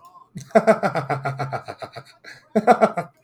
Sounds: Laughter